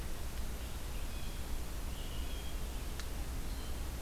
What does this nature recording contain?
Red-eyed Vireo, Blue Jay